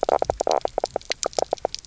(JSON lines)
{"label": "biophony, knock croak", "recorder": "SoundTrap 300"}